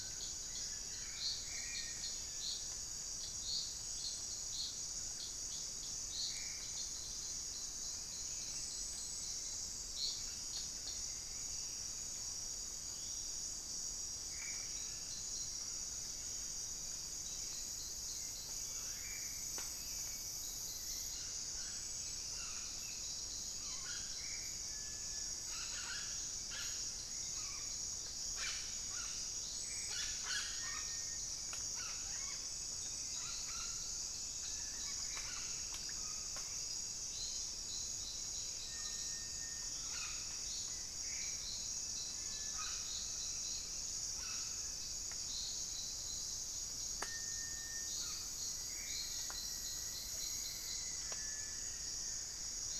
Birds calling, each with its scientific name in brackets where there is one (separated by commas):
Black-faced Antthrush (Formicarius analis), Hauxwell's Thrush (Turdus hauxwelli), Buff-throated Woodcreeper (Xiphorhynchus guttatus), Rufous-fronted Antthrush (Formicarius rufifrons), unidentified bird